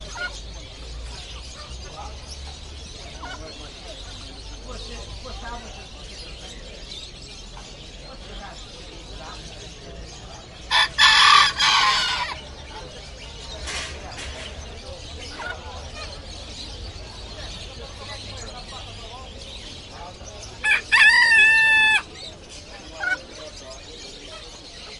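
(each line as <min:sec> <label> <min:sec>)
0:10.6 A rooster crows in a bird market. 0:12.5
0:20.5 A rooster crows in a bird market. 0:22.3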